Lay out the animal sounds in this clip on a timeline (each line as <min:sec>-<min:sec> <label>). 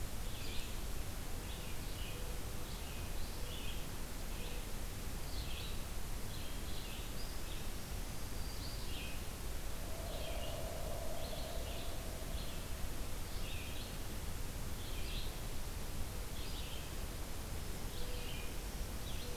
0:00.0-0:19.4 Red-eyed Vireo (Vireo olivaceus)
0:07.6-0:08.9 Black-throated Green Warbler (Setophaga virens)
0:18.5-0:19.4 Black-throated Green Warbler (Setophaga virens)